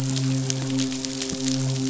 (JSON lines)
{"label": "biophony, midshipman", "recorder": "SoundTrap 500"}